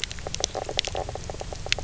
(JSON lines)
{"label": "biophony, knock croak", "recorder": "SoundTrap 300"}